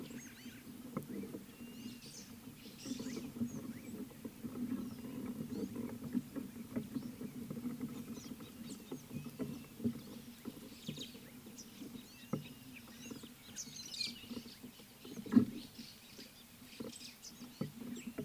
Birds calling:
Rüppell's Starling (Lamprotornis purpuroptera)

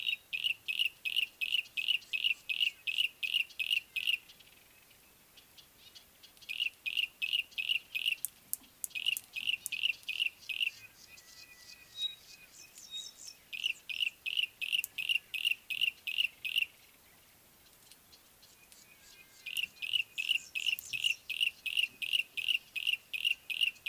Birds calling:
Yellow-breasted Apalis (Apalis flavida), Pale Prinia (Prinia somalica), Pygmy Batis (Batis perkeo)

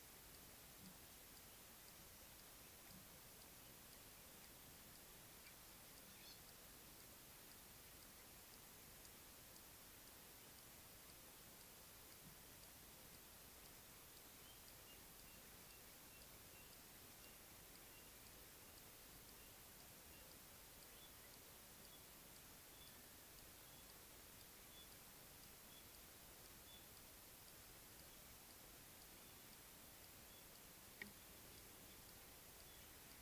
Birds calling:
White-browed Robin-Chat (Cossypha heuglini)

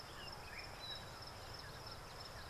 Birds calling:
Red-faced Crombec (Sylvietta whytii)

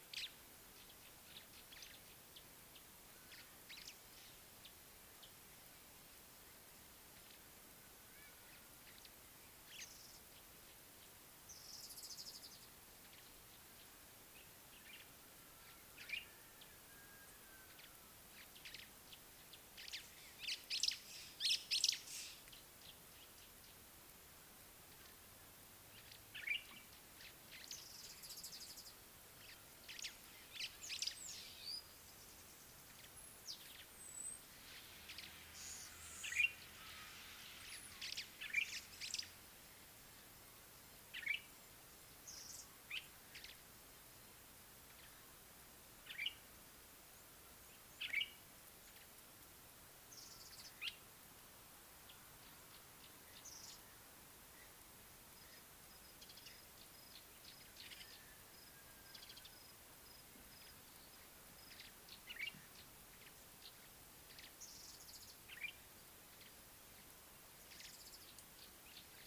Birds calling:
Mariqua Sunbird (Cinnyris mariquensis), Purple Grenadier (Granatina ianthinogaster), Common Bulbul (Pycnonotus barbatus), White-browed Sparrow-Weaver (Plocepasser mahali)

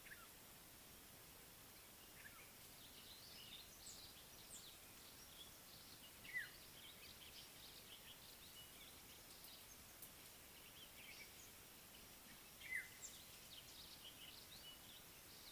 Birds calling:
African Black-headed Oriole (Oriolus larvatus)

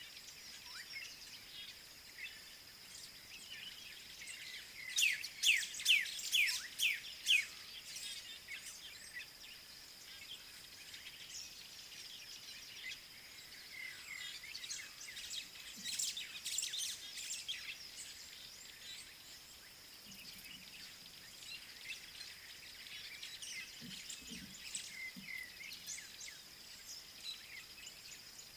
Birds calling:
White-browed Sparrow-Weaver (Plocepasser mahali), Black-backed Puffback (Dryoscopus cubla), African Bare-eyed Thrush (Turdus tephronotus)

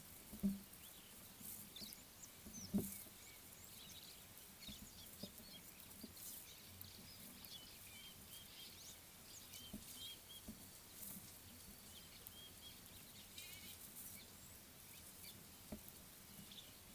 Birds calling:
Gabar Goshawk (Micronisus gabar)

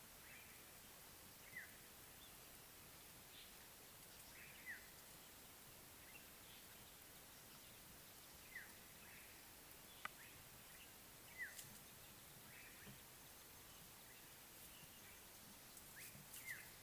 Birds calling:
African Black-headed Oriole (Oriolus larvatus)

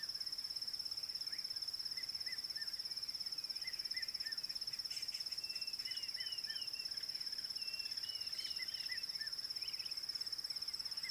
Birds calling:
Dideric Cuckoo (Chrysococcyx caprius), Red-chested Cuckoo (Cuculus solitarius)

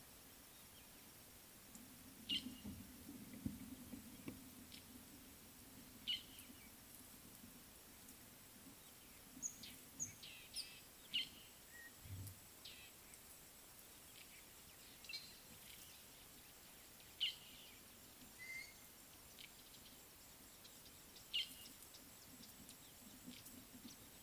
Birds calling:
Somali Tit (Melaniparus thruppi), Fork-tailed Drongo (Dicrurus adsimilis)

